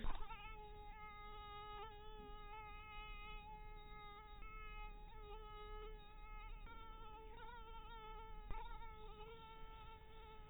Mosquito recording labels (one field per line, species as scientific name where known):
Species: mosquito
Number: one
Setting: cup